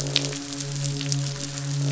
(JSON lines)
{"label": "biophony, croak", "recorder": "SoundTrap 500"}
{"label": "biophony, midshipman", "recorder": "SoundTrap 500"}